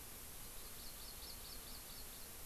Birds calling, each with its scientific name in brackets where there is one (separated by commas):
Hawaii Amakihi (Chlorodrepanis virens)